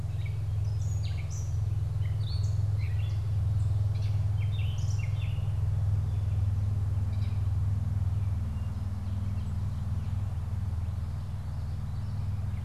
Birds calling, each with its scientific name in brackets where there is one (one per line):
Common Yellowthroat (Geothlypis trichas)
Gray Catbird (Dumetella carolinensis)